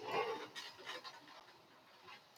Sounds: Sniff